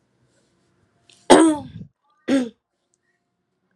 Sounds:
Throat clearing